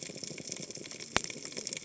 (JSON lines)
{"label": "biophony, cascading saw", "recorder": "HydroMoth"}